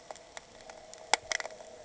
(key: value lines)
label: anthrophony, boat engine
recorder: HydroMoth